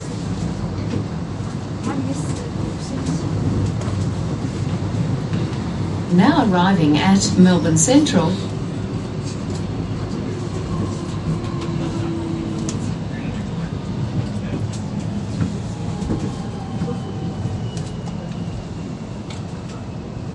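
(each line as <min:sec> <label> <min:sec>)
0:00.0 A train moves continuously through a tunnel beneath a city. 0:20.3
0:01.9 A woman is speaking calmly. 0:03.6
0:06.1 An announcer loudly notifies about the train's arrival. 0:08.3
0:08.4 Train slowing down inside a tunnel with continuous echo. 0:20.3
0:09.0 People chatting with their voices fading in the background. 0:18.5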